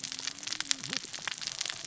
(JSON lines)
{"label": "biophony, cascading saw", "recorder": "SoundTrap 600 or HydroMoth"}